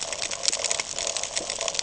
{"label": "ambient", "recorder": "HydroMoth"}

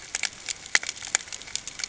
{"label": "ambient", "recorder": "HydroMoth"}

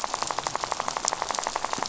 {"label": "biophony, rattle", "recorder": "SoundTrap 500"}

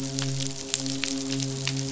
{"label": "biophony, midshipman", "recorder": "SoundTrap 500"}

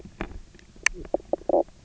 {"label": "biophony, knock croak", "recorder": "SoundTrap 300"}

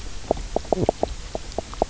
{"label": "biophony, knock croak", "recorder": "SoundTrap 300"}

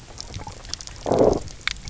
{"label": "biophony, low growl", "recorder": "SoundTrap 300"}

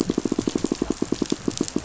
{"label": "biophony, pulse", "recorder": "SoundTrap 500"}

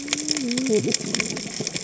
{"label": "biophony, cascading saw", "recorder": "HydroMoth"}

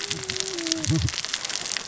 {"label": "biophony, cascading saw", "recorder": "SoundTrap 600 or HydroMoth"}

